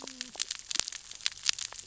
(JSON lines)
{"label": "biophony, cascading saw", "recorder": "SoundTrap 600 or HydroMoth"}